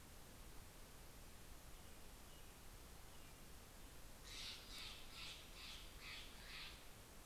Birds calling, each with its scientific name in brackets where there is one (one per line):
Steller's Jay (Cyanocitta stelleri)